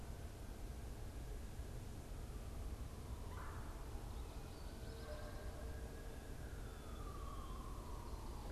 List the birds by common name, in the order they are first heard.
Red-bellied Woodpecker, unidentified bird